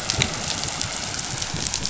{"label": "anthrophony, boat engine", "recorder": "SoundTrap 500"}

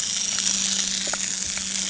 {"label": "anthrophony, boat engine", "recorder": "HydroMoth"}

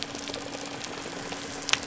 {"label": "biophony", "recorder": "SoundTrap 300"}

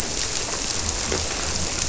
{"label": "biophony", "recorder": "SoundTrap 300"}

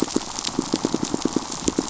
{"label": "biophony, pulse", "recorder": "SoundTrap 500"}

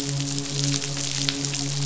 {"label": "biophony, midshipman", "recorder": "SoundTrap 500"}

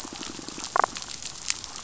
{"label": "biophony, damselfish", "recorder": "SoundTrap 500"}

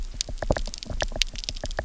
{"label": "biophony, knock", "recorder": "SoundTrap 300"}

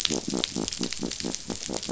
{"label": "biophony", "recorder": "SoundTrap 500"}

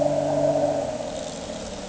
{"label": "anthrophony, boat engine", "recorder": "HydroMoth"}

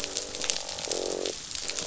{"label": "biophony, croak", "recorder": "SoundTrap 500"}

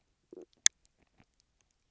{"label": "biophony, stridulation", "recorder": "SoundTrap 300"}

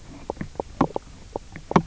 {"label": "biophony, knock croak", "recorder": "SoundTrap 300"}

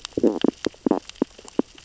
{"label": "biophony, stridulation", "recorder": "SoundTrap 600 or HydroMoth"}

